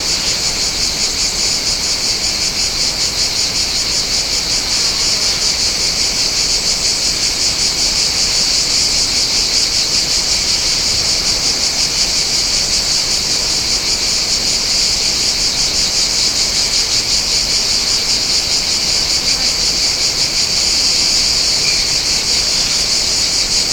Are the bugs loud?
yes